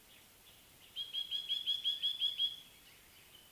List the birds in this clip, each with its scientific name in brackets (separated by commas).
Black-collared Apalis (Oreolais pulcher)